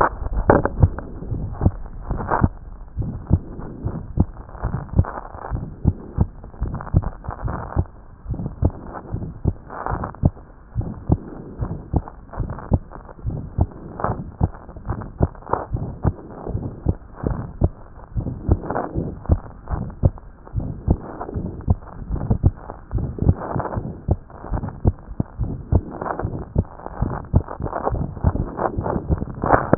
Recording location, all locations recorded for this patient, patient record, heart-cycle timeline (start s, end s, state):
aortic valve (AV)
aortic valve (AV)+aortic valve (AV)+pulmonary valve (PV)+pulmonary valve (PV)+tricuspid valve (TV)+mitral valve (MV)
#Age: Adolescent
#Sex: Female
#Height: 142.0 cm
#Weight: 26.5 kg
#Pregnancy status: False
#Murmur: Present
#Murmur locations: aortic valve (AV)+pulmonary valve (PV)+tricuspid valve (TV)
#Most audible location: tricuspid valve (TV)
#Systolic murmur timing: Holosystolic
#Systolic murmur shape: Decrescendo
#Systolic murmur grading: I/VI
#Systolic murmur pitch: Medium
#Systolic murmur quality: Harsh
#Diastolic murmur timing: nan
#Diastolic murmur shape: nan
#Diastolic murmur grading: nan
#Diastolic murmur pitch: nan
#Diastolic murmur quality: nan
#Outcome: Abnormal
#Campaign: 2014 screening campaign
0.00	8.32	unannotated
8.32	8.44	S1
8.44	8.62	systole
8.62	8.74	S2
8.74	9.14	diastole
9.14	9.26	S1
9.26	9.44	systole
9.44	9.56	S2
9.56	9.92	diastole
9.92	10.04	S1
10.04	10.22	systole
10.22	10.32	S2
10.32	10.78	diastole
10.78	10.90	S1
10.90	11.10	systole
11.10	11.20	S2
11.20	11.62	diastole
11.62	11.74	S1
11.74	11.94	systole
11.94	12.04	S2
12.04	12.40	diastole
12.40	12.50	S1
12.50	12.70	systole
12.70	12.82	S2
12.82	13.28	diastole
13.28	13.40	S1
13.40	13.58	systole
13.58	13.68	S2
13.68	14.08	diastole
14.08	14.22	S1
14.22	14.40	systole
14.40	14.52	S2
14.52	14.88	diastole
14.88	15.00	S1
15.00	15.20	systole
15.20	15.30	S2
15.30	15.74	diastole
15.74	15.86	S1
15.86	16.04	systole
16.04	16.14	S2
16.14	16.52	diastole
16.52	16.66	S1
16.66	16.86	systole
16.86	16.96	S2
16.96	17.26	diastole
17.26	17.38	S1
17.38	17.60	systole
17.60	17.72	S2
17.72	18.16	diastole
18.16	18.30	S1
18.30	18.48	systole
18.48	18.60	S2
18.60	18.98	diastole
18.98	19.10	S1
19.10	19.28	systole
19.28	19.40	S2
19.40	19.72	diastole
19.72	19.84	S1
19.84	20.02	systole
20.02	20.14	S2
20.14	20.56	diastole
20.56	20.70	S1
20.70	20.88	systole
20.88	20.98	S2
20.98	21.36	diastole
21.36	21.50	S1
21.50	21.68	systole
21.68	21.78	S2
21.78	22.10	diastole
22.10	29.78	unannotated